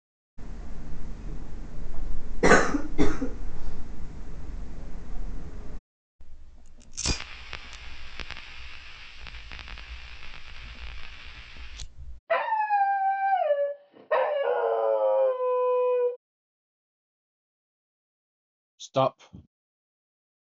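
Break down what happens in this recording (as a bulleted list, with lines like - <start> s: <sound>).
- 0.4 s: someone coughs
- 6.2 s: the sound of fire
- 12.3 s: a dog can be heard
- 18.8 s: a voice says "Stop"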